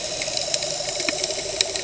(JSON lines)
{"label": "anthrophony, boat engine", "recorder": "HydroMoth"}